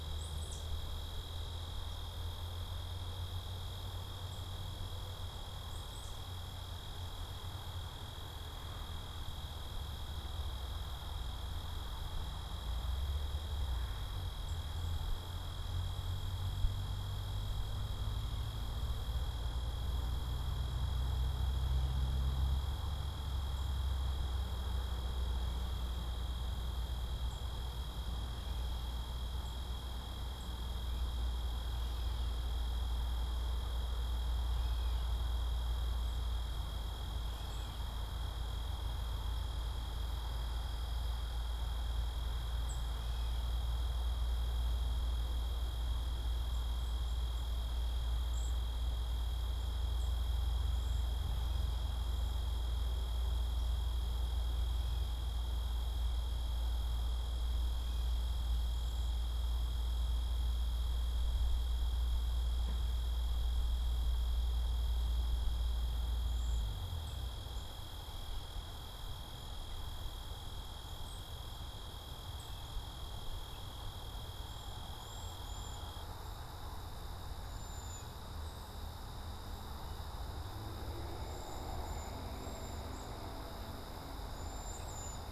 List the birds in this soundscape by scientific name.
Baeolophus bicolor, Dumetella carolinensis, Bombycilla cedrorum